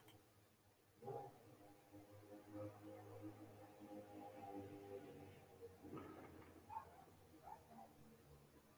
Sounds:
Cough